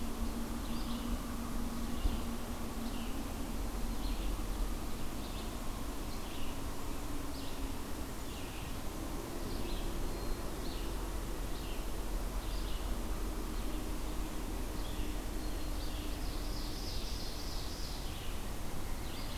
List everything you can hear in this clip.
Red-eyed Vireo, Ovenbird